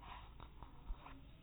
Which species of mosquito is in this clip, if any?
no mosquito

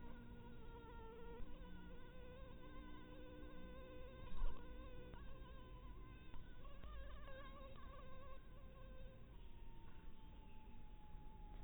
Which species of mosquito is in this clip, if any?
mosquito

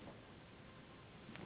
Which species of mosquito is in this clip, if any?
Anopheles gambiae s.s.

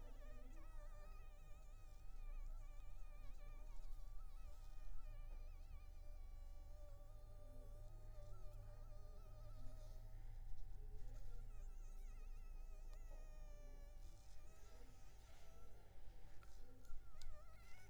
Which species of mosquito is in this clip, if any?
Anopheles arabiensis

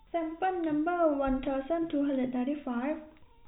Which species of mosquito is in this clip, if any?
no mosquito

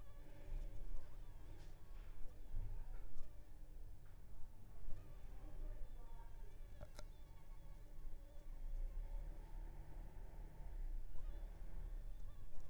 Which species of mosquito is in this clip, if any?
Anopheles funestus s.s.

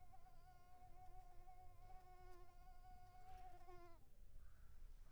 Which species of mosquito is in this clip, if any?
Mansonia uniformis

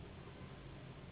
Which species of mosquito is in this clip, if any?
Anopheles gambiae s.s.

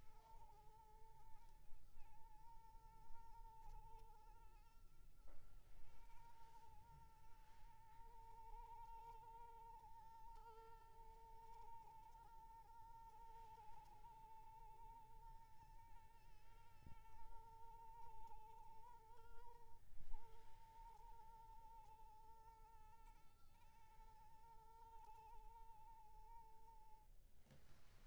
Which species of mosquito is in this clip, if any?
Anopheles arabiensis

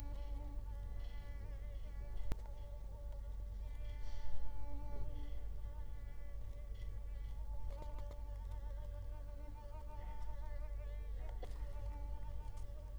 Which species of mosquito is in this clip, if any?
Culex quinquefasciatus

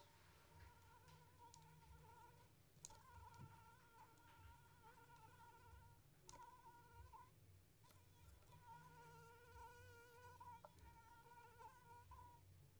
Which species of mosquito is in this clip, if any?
Anopheles squamosus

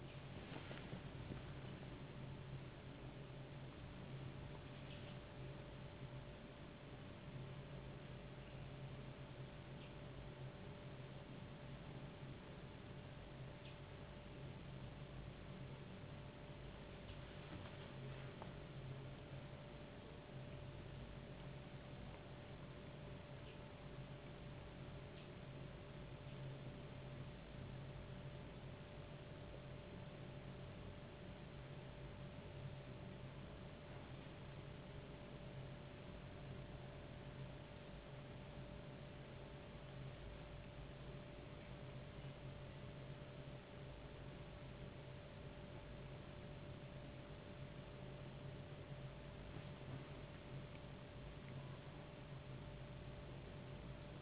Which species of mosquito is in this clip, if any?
no mosquito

